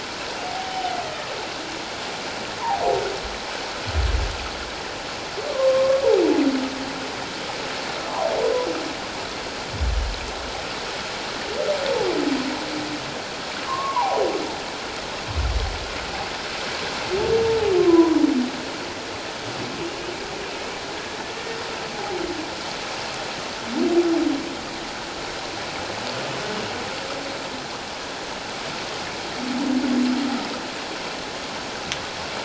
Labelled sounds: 0.4	1.0	humpback whale, 0.78 to 0.81 kHz
5.5	6.1	humpback whale, 1.0 to 1.2 kHz
13.7	14.2	humpback whale, 0.78 to 1.2 kHz
17.8	18.2	humpback whale, 0.91 to 1.2 kHz
22.0	22.2	humpback whale, 0.78 to 0.88 kHz

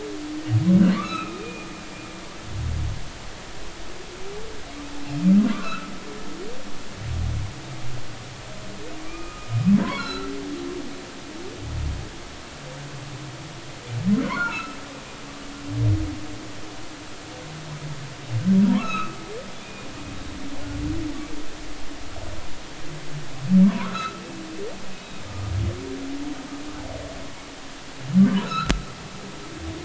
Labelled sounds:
1.0	1.7	humpback whale, 1.1 to 2.8 kHz
5.5	5.9	humpback whale, 1.0 to 2.7 kHz
9.0	10.3	humpback whale, 0.93 to 4.3 kHz
14.2	14.8	humpback whale, 0.86 to 2.8 kHz
18.7	19.2	humpback whale, 0.90 to 4.1 kHz
19.6	19.9	humpback whale, 2.3 to 2.5 kHz
23.6	24.2	humpback whale, 0.90 to 1.6 kHz
25.0	25.5	humpback whale, 1.2 to 3.9 kHz
28.4	28.7	humpback whale, 1.2 to 4.2 kHz

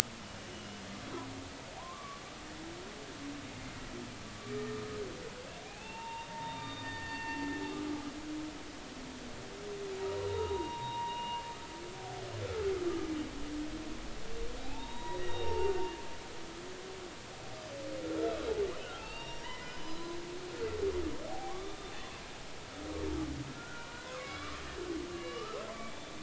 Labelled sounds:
0.5	0.8	humpback whale, 2.8 to 3.1 kHz
1.8	2.2	humpback whale, 0.90 to 1.2 kHz
5.6	7.4	humpback whale, 0.80 to 3.7 kHz
10.3	11.4	humpback whale, 0.80 to 4.0 kHz
12.4	12.7	humpback whale, 1.2 to 1.4 kHz
14.6	15.7	humpback whale, 0.80 to 5.7 kHz
18.8	20.1	humpback whale, 0.80 to 5.7 kHz
21.3	22.1	humpback whale, 0.80 to 3.6 kHz
23.5	24.6	humpback whale, 0.93 to 2.4 kHz
25.1	26.1	humpback whale, 1.1 to 3.6 kHz

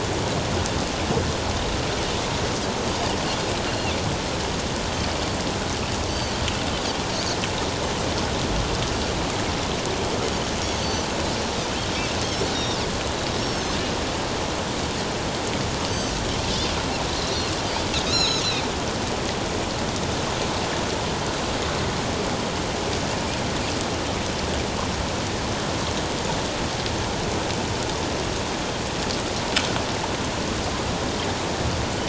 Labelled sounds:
6.1	6.4	Pacific white-sided dolphin, 2.9 to 4.7 kHz
12.5	12.8	Pacific white-sided dolphin, 3.6 to 5.7 kHz
13.4	13.8	Pacific white-sided dolphin, 4.0 to 5.6 kHz
18.0	18.7	Pacific white-sided dolphin, 2.3 to 7.1 kHz

